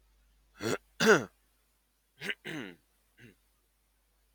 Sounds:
Throat clearing